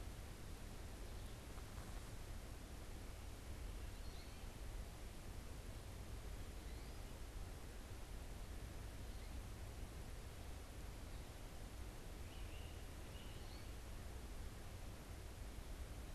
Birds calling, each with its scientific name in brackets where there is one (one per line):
Great Crested Flycatcher (Myiarchus crinitus)
American Goldfinch (Spinus tristis)